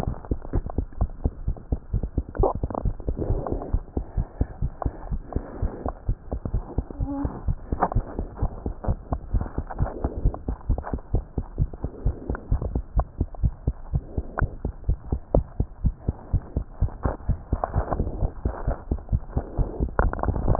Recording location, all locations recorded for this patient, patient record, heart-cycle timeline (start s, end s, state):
tricuspid valve (TV)
aortic valve (AV)+pulmonary valve (PV)+tricuspid valve (TV)+mitral valve (MV)
#Age: Child
#Sex: Male
#Height: 90.0 cm
#Weight: 13.9 kg
#Pregnancy status: False
#Murmur: Absent
#Murmur locations: nan
#Most audible location: nan
#Systolic murmur timing: nan
#Systolic murmur shape: nan
#Systolic murmur grading: nan
#Systolic murmur pitch: nan
#Systolic murmur quality: nan
#Diastolic murmur timing: nan
#Diastolic murmur shape: nan
#Diastolic murmur grading: nan
#Diastolic murmur pitch: nan
#Diastolic murmur quality: nan
#Outcome: Normal
#Campaign: 2015 screening campaign
0.00	3.84	unannotated
3.84	3.96	systole
3.96	4.04	S2
4.04	4.16	diastole
4.16	4.28	S1
4.28	4.37	systole
4.37	4.46	S2
4.46	4.61	diastole
4.61	4.72	S1
4.72	4.84	systole
4.84	4.94	S2
4.94	5.11	diastole
5.11	5.22	S1
5.22	5.33	systole
5.33	5.44	S2
5.44	5.62	diastole
5.62	5.72	S1
5.72	5.86	systole
5.86	5.94	S2
5.94	6.08	diastole
6.08	6.18	S1
6.18	6.30	systole
6.30	6.40	S2
6.40	6.54	diastole
6.54	6.64	S1
6.64	6.76	systole
6.76	6.84	S2
6.84	7.00	diastole
7.00	7.10	S1
7.10	7.20	systole
7.20	7.32	S2
7.32	7.46	diastole
7.46	7.56	S1
7.56	7.70	systole
7.70	7.80	S2
7.80	7.94	diastole
7.94	8.06	S1
8.06	8.18	systole
8.18	8.28	S2
8.28	8.41	diastole
8.41	8.52	S1
8.52	8.64	systole
8.64	8.74	S2
8.74	8.86	diastole
8.86	8.98	S1
8.98	9.10	systole
9.10	9.20	S2
9.20	9.32	diastole
9.32	9.42	S1
9.42	9.56	systole
9.56	9.66	S2
9.66	9.80	diastole
9.80	9.90	S1
9.90	10.04	systole
10.04	10.12	S2
10.12	10.24	diastole
10.24	10.32	S1
10.32	10.48	systole
10.48	10.56	S2
10.56	10.70	diastole
10.70	10.80	S1
10.80	10.93	systole
10.93	11.00	S2
11.00	11.14	diastole
11.14	11.22	S1
11.22	11.36	systole
11.36	11.46	S2
11.46	11.58	diastole
11.58	11.70	S1
11.70	11.83	systole
11.83	11.92	S2
11.92	12.04	diastole
12.04	12.16	S1
12.16	12.28	systole
12.28	12.38	S2
12.38	12.51	diastole
12.51	12.62	S1
12.62	12.74	systole
12.74	12.84	S2
12.84	12.96	diastole
12.96	13.06	S1
13.06	13.19	systole
13.19	13.27	S2
13.27	13.42	diastole
13.42	13.54	S1
13.54	13.66	systole
13.66	13.76	S2
13.76	13.92	diastole
13.92	14.02	S1
14.02	14.16	systole
14.16	14.26	S2
14.26	14.42	diastole
14.42	14.52	S1
14.52	14.64	systole
14.64	14.72	S2
14.72	14.88	diastole
14.88	14.98	S1
14.98	15.12	systole
15.12	15.20	S2
15.20	15.34	diastole
15.34	15.46	S1
15.46	15.58	systole
15.58	15.68	S2
15.68	15.84	diastole
15.84	15.94	S1
15.94	16.06	systole
16.06	16.16	S2
16.16	16.33	diastole
16.33	16.42	S1
16.42	16.54	systole
16.54	16.64	S2
16.64	16.79	diastole
16.79	20.59	unannotated